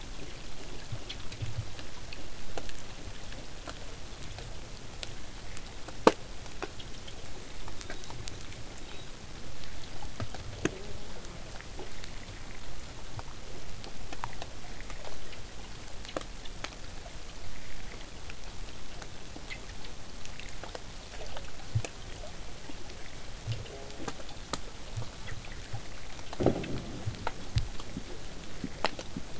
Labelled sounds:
7.7	9.1	killer whale, southern resident, whistle, 3.5 to 4.2 kHz
14.4	19.4	vessel noise, 0 to 8.0 kHz
23.6	24.3	killer whale, southern resident, J pod, call S04, 0.15 to 1.2 kHz

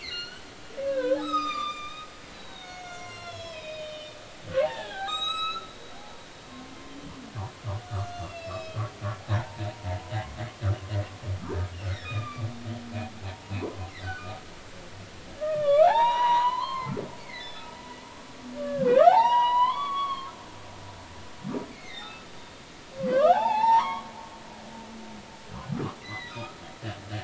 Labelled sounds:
0.0	4.2	humpback whale, 0.93 to 7.9 kHz
4.6	5.7	humpback whale, 0.80 to 7.9 kHz
6.0	6.3	humpback whale, 0.80 to 0.99 kHz
8.0	8.8	humpback whale, 2.5 to 6.4 kHz
11.9	12.5	humpback whale, 1.1 to 4.9 kHz
13.3	14.4	humpback whale, 0.86 to 1.6 kHz
15.4	16.9	humpback whale, 0.80 to 6.0 kHz
17.2	17.7	humpback whale, 1.7 to 5.3 kHz
18.6	20.3	humpback whale, 0.80 to 5.9 kHz
21.7	22.3	humpback whale, 1.2 to 4.4 kHz
23.1	24.1	humpback whale, 0.80 to 6.0 kHz
26.0	26.5	humpback whale, 1.9 to 4.2 kHz

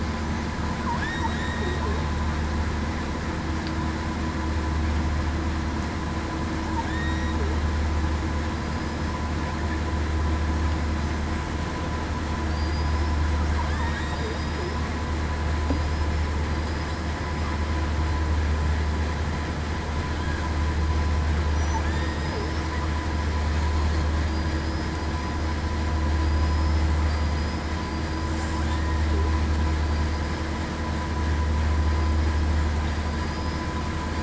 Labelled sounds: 1.2	1.8	killer whale, southern resident, 1.8 to 3.8 kHz
6.8	7.3	killer whale, southern resident, 1.6 to 3.8 kHz
12.5	12.9	killer whale, southern resident, 4.6 to 5.0 kHz
13.7	14.2	killer whale, southern resident, 1.7 to 3.8 kHz
21.8	22.3	killer whale, southern resident, 1.7 to 1.9 kHz
28.7	29.0	killer whale, southern resident, 1.7 to 1.9 kHz
33.1	33.7	killer whale, southern resident, 4.8 to 5.2 kHz

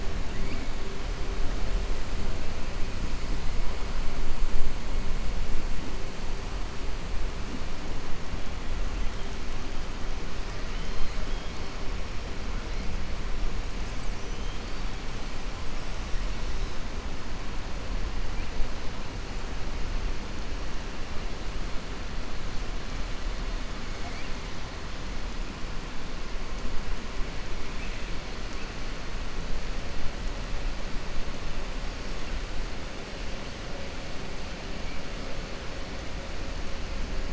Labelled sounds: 10.6	11.7	killer whale, 2.1 to 5.2 kHz

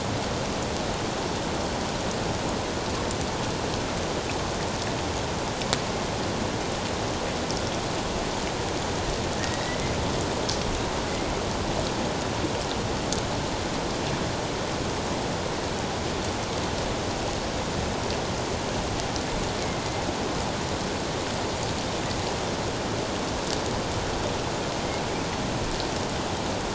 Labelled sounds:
9.4	9.9	killer whale, northern resident, A clan, AA subclan, A04 pod, 1.6 to 3.9 kHz
19.6	19.9	killer whale, northern resident, A clan, AA subclan, A04 pod, 2.0 to 2.2 kHz

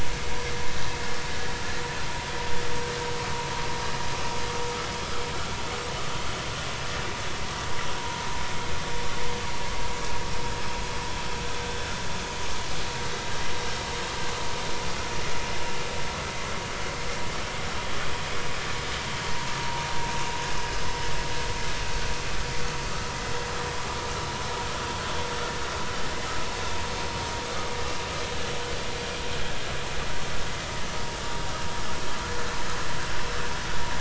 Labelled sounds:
13.0	13.3	vessel noise, 3.6 to 3.9 kHz
19.6	19.8	vessel noise, 0.86 to 0.99 kHz

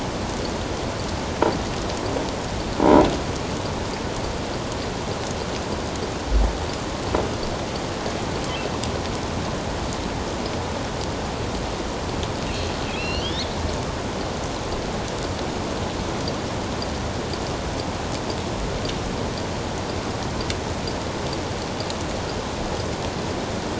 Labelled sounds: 12.5	13.5	killer whale, offshore, 2.4 to 4.5 kHz

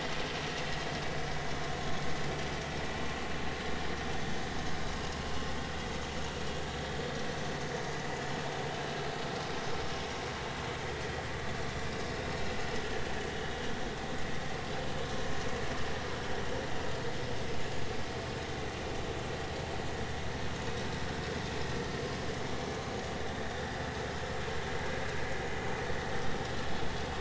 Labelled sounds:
23.7	24.0	vessel noise, 4.9 to 5.1 kHz

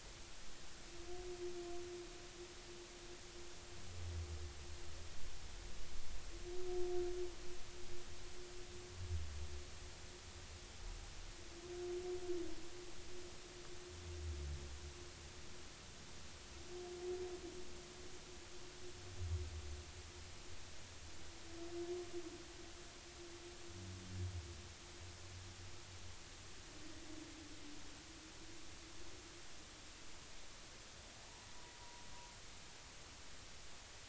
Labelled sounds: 31.2	31.5	humpback whale, 0.83 to 1.0 kHz
31.8	32.1	humpback whale, 0.86 to 1.0 kHz

